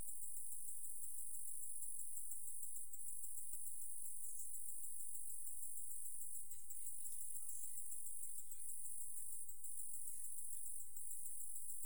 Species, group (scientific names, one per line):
Decticus albifrons
Orthoptera